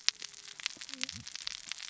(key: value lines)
label: biophony, cascading saw
recorder: SoundTrap 600 or HydroMoth